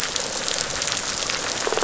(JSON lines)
{"label": "biophony", "recorder": "SoundTrap 500"}